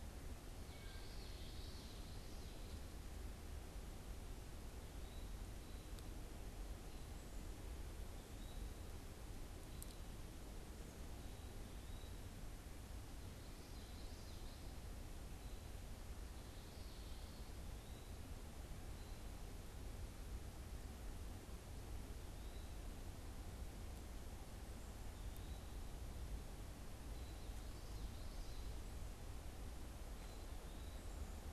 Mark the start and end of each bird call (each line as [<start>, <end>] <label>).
[0.56, 1.16] Wood Thrush (Hylocichla mustelina)
[0.66, 2.66] Common Yellowthroat (Geothlypis trichas)
[4.76, 5.36] Eastern Wood-Pewee (Contopus virens)
[7.96, 12.56] Eastern Wood-Pewee (Contopus virens)
[13.16, 14.96] Common Yellowthroat (Geothlypis trichas)
[27.26, 28.86] Common Yellowthroat (Geothlypis trichas)